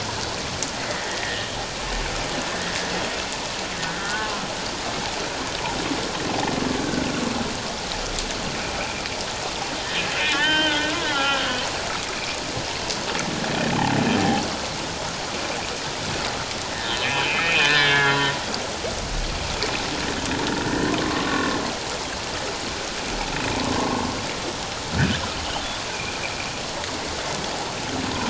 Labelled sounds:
0.9	1.5	humpback whale, 1.7 to 2.1 kHz
3.8	4.4	humpback whale, 1.0 to 1.8 kHz
10.2	11.6	humpback whale, 0.78 to 3.3 kHz
14.2	14.5	humpback whale, 0.78 to 0.88 kHz
16.9	18.3	humpback whale, 1.0 to 4.2 kHz
20.7	21.6	humpback whale, 1.0 to 1.9 kHz
23.7	24.1	humpback whale, 0.78 to 1.2 kHz
24.9	25.2	humpback whale, 1.4 to 1.9 kHz

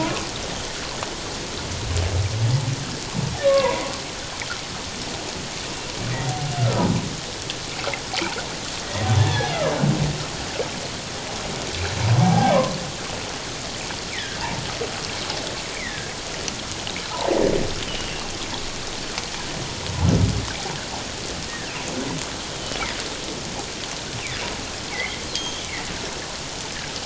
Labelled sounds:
3.4	3.9	humpback whale, 0.91 to 1.2 kHz
6.6	6.9	humpback whale, 1.2 to 1.5 kHz
9.2	9.6	humpback whale, 1.6 to 1.8 kHz
12.2	12.5	humpback whale, 0.78 to 0.88 kHz
14.1	14.4	humpback whale, 1.5 to 2.5 kHz
15.7	16.1	humpback whale, 1.5 to 2.4 kHz
17.9	18.1	humpback whale, 2.8 to 3.1 kHz
24.9	25.6	humpback whale, 1.9 to 3.4 kHz

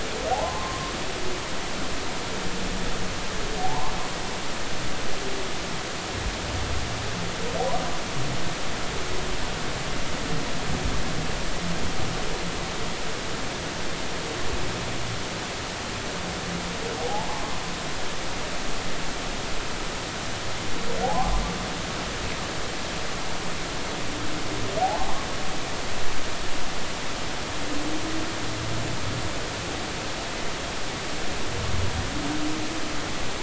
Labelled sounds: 0.3	0.9	humpback whale, 0.80 to 1.1 kHz
3.6	3.9	humpback whale, 0.80 to 1.2 kHz
17.0	17.3	humpback whale, 0.80 to 0.99 kHz
21.0	21.3	humpback whale, 0.80 to 1.2 kHz
24.8	25.2	humpback whale, 0.80 to 0.93 kHz

